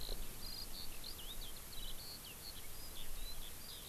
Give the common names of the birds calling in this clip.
Eurasian Skylark